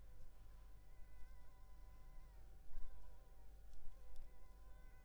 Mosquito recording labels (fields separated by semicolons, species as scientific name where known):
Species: Culex pipiens complex; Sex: female; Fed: unfed; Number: one; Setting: cup